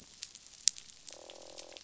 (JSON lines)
{"label": "biophony, croak", "recorder": "SoundTrap 500"}